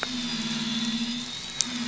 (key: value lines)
label: anthrophony, boat engine
recorder: SoundTrap 500